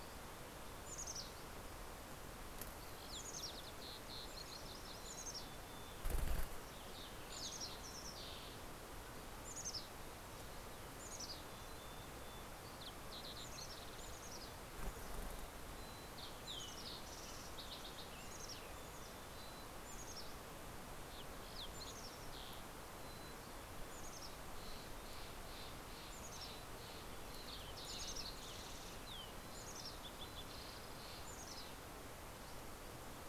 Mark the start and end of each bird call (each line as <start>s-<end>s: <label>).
0.4s-2.0s: Mountain Chickadee (Poecile gambeli)
1.7s-5.1s: Fox Sparrow (Passerella iliaca)
2.8s-6.2s: Mountain Chickadee (Poecile gambeli)
5.9s-9.3s: Fox Sparrow (Passerella iliaca)
9.2s-12.6s: Mountain Chickadee (Poecile gambeli)
11.9s-14.3s: Fox Sparrow (Passerella iliaca)
13.2s-15.0s: Mountain Chickadee (Poecile gambeli)
14.6s-18.5s: Fox Sparrow (Passerella iliaca)
15.5s-17.3s: Mountain Chickadee (Poecile gambeli)
16.5s-19.5s: Western Tanager (Piranga ludoviciana)
17.9s-20.8s: Mountain Chickadee (Poecile gambeli)
20.5s-23.3s: Fox Sparrow (Passerella iliaca)
21.4s-24.8s: Mountain Chickadee (Poecile gambeli)
23.7s-29.4s: Steller's Jay (Cyanocitta stelleri)
24.7s-30.1s: Fox Sparrow (Passerella iliaca)
25.7s-27.3s: Mountain Chickadee (Poecile gambeli)
29.2s-30.5s: Mountain Chickadee (Poecile gambeli)
30.0s-32.2s: Steller's Jay (Cyanocitta stelleri)
31.3s-32.2s: Mountain Chickadee (Poecile gambeli)